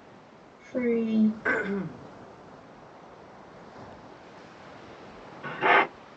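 At 0.73 seconds, a voice says "Three." After that, at 1.42 seconds, coughing is heard. Finally, at 5.42 seconds, a horse can be heard. A quiet background noise persists.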